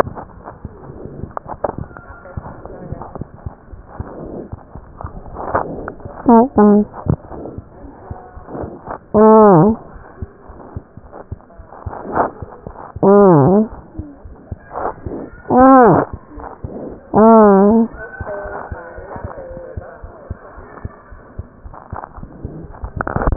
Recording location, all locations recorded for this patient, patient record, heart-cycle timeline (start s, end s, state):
pulmonary valve (PV)
aortic valve (AV)+pulmonary valve (PV)+tricuspid valve (TV)+mitral valve (MV)
#Age: Child
#Sex: Male
#Height: 87.0 cm
#Weight: 12.5 kg
#Pregnancy status: False
#Murmur: Unknown
#Murmur locations: nan
#Most audible location: nan
#Systolic murmur timing: nan
#Systolic murmur shape: nan
#Systolic murmur grading: nan
#Systolic murmur pitch: nan
#Systolic murmur quality: nan
#Diastolic murmur timing: nan
#Diastolic murmur shape: nan
#Diastolic murmur grading: nan
#Diastolic murmur pitch: nan
#Diastolic murmur quality: nan
#Outcome: Abnormal
#Campaign: 2015 screening campaign
0.00	7.57	unannotated
7.57	7.63	S2
7.63	7.79	diastole
7.79	7.93	S1
7.93	8.08	systole
8.08	8.16	S2
8.16	8.34	diastole
8.34	8.44	S1
8.44	8.57	systole
8.57	8.66	S2
8.66	8.86	diastole
8.86	8.98	S1
8.98	9.88	unannotated
9.88	10.03	S1
10.03	10.16	systole
10.16	10.28	S2
10.28	10.44	diastole
10.44	10.56	S1
10.56	10.73	systole
10.73	10.81	S2
10.81	11.02	diastole
11.02	11.14	S1
11.14	11.29	systole
11.29	11.39	S2
11.39	11.56	diastole
11.56	11.67	S1
11.67	11.83	systole
11.83	11.93	S2
11.93	13.69	unannotated
13.69	13.82	S1
13.82	13.93	systole
13.93	14.04	S2
14.04	14.22	diastole
14.22	14.35	S1
14.35	14.47	systole
14.47	14.58	S2
14.58	14.72	diastole
14.72	19.72	unannotated
19.72	19.81	S2
19.81	19.98	diastole
19.98	20.10	S1
20.10	20.26	systole
20.26	20.34	S2
20.34	20.54	diastole
20.54	20.64	S1
20.64	20.81	systole
20.81	20.91	S2
20.91	21.08	diastole
21.08	21.20	S1
21.20	21.34	systole
21.34	21.45	S2
21.45	21.65	diastole
21.65	23.36	unannotated